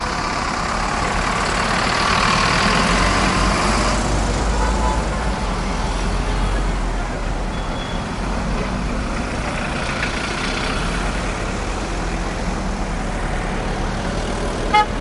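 0.0s Car engines humming on the street. 15.0s
4.6s A car horn honks. 5.0s
14.6s A car horn honks loudly once. 14.9s

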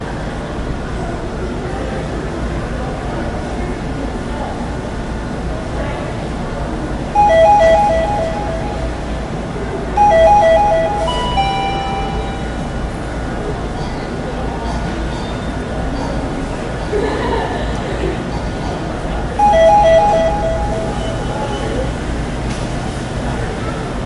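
0.0s A low, constant mechanical hum is heard. 24.1s
0.9s Voices murmuring indistinctly in the distance. 7.2s
7.1s An electronic door chime beeps sharply and rhythmically. 9.2s
10.0s An electronic door chime beeps sharply and rhythmically. 11.1s
11.2s Two sharp electronic beeps from a door chime. 12.5s
13.7s Distant, dry coughs occurring with occasional pauses. 17.1s
16.9s Several voices laughing at a medium distance with a light echo. 18.3s
18.3s Two distant dry coughs. 19.1s
19.4s An electronic door chime beeps sharply and rhythmically. 21.2s

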